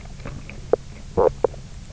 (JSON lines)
{"label": "biophony, knock croak", "recorder": "SoundTrap 300"}